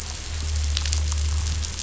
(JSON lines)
{"label": "anthrophony, boat engine", "recorder": "SoundTrap 500"}